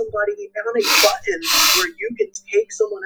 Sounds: Sniff